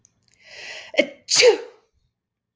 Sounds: Sneeze